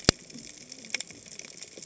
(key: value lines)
label: biophony, cascading saw
recorder: HydroMoth